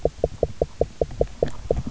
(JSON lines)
{"label": "biophony, knock", "recorder": "SoundTrap 300"}